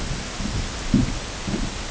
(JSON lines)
{"label": "ambient", "recorder": "HydroMoth"}